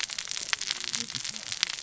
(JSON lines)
{"label": "biophony, cascading saw", "recorder": "SoundTrap 600 or HydroMoth"}